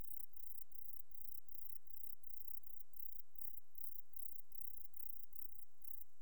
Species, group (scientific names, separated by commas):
Platycleis sabulosa, Orthoptera